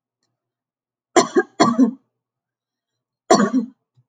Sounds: Cough